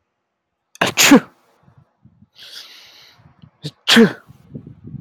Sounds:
Sneeze